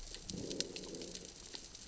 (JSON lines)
{"label": "biophony, growl", "recorder": "SoundTrap 600 or HydroMoth"}